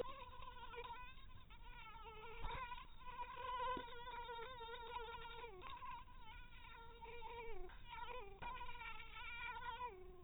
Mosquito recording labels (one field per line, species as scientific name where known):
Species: mosquito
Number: one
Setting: cup